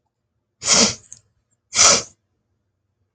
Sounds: Sniff